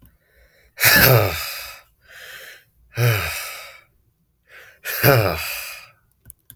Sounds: Sigh